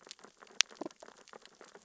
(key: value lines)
label: biophony, sea urchins (Echinidae)
recorder: SoundTrap 600 or HydroMoth